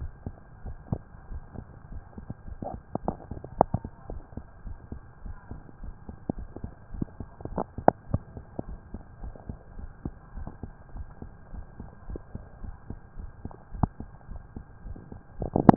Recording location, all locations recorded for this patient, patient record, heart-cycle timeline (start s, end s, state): tricuspid valve (TV)
aortic valve (AV)+pulmonary valve (PV)+tricuspid valve (TV)+mitral valve (MV)
#Age: Child
#Sex: Female
#Height: 116.0 cm
#Weight: 30.4 kg
#Pregnancy status: False
#Murmur: Absent
#Murmur locations: nan
#Most audible location: nan
#Systolic murmur timing: nan
#Systolic murmur shape: nan
#Systolic murmur grading: nan
#Systolic murmur pitch: nan
#Systolic murmur quality: nan
#Diastolic murmur timing: nan
#Diastolic murmur shape: nan
#Diastolic murmur grading: nan
#Diastolic murmur pitch: nan
#Diastolic murmur quality: nan
#Outcome: Normal
#Campaign: 2015 screening campaign
0.00	4.08	unannotated
4.08	4.24	S1
4.24	4.35	systole
4.35	4.44	S2
4.44	4.62	diastole
4.62	4.78	S1
4.78	4.90	systole
4.90	5.02	S2
5.02	5.24	diastole
5.24	5.36	S1
5.36	5.50	systole
5.50	5.60	S2
5.60	5.82	diastole
5.82	5.96	S1
5.96	6.04	systole
6.04	6.14	S2
6.14	6.34	diastole
6.34	6.50	S1
6.50	6.60	systole
6.60	6.72	S2
6.72	6.91	diastole
6.91	7.06	S1
7.06	7.18	systole
7.18	7.28	S2
7.28	7.46	diastole
7.46	7.64	S1
7.64	7.76	systole
7.76	7.86	S2
7.86	8.04	diastole
8.04	8.20	S1
8.20	8.34	systole
8.34	8.44	S2
8.44	8.64	diastole
8.64	8.78	S1
8.78	8.92	systole
8.92	9.02	S2
9.02	9.22	diastole
9.22	9.36	S1
9.36	9.47	systole
9.47	9.58	S2
9.58	9.76	diastole
9.76	9.90	S1
9.90	10.03	systole
10.03	10.14	S2
10.14	10.35	diastole
10.35	10.52	S1
10.52	10.61	systole
10.61	10.72	S2
10.72	10.94	diastole
10.94	11.08	S1
11.08	11.20	systole
11.20	11.32	S2
11.32	11.51	diastole
11.51	11.66	S1
11.66	11.78	systole
11.78	11.88	S2
11.88	12.08	diastole
12.08	12.22	S1
12.22	12.33	systole
12.33	12.44	S2
12.44	12.62	diastole
12.62	12.76	S1
12.76	12.87	systole
12.87	12.98	S2
12.98	13.16	diastole
13.16	13.32	S1
13.32	13.44	systole
13.44	13.54	S2
13.54	13.71	diastole
13.71	15.76	unannotated